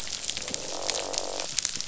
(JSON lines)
{"label": "biophony, croak", "recorder": "SoundTrap 500"}